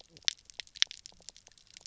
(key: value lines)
label: biophony, knock croak
recorder: SoundTrap 300